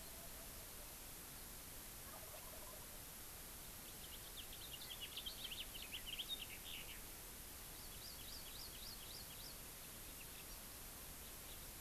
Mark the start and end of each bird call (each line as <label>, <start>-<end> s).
Wild Turkey (Meleagris gallopavo), 2.0-3.1 s
House Finch (Haemorhous mexicanus), 3.8-7.1 s
Hawaii Amakihi (Chlorodrepanis virens), 7.7-9.6 s